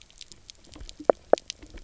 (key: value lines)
label: biophony, double pulse
recorder: SoundTrap 300